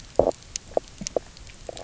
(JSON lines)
{"label": "biophony, knock croak", "recorder": "SoundTrap 300"}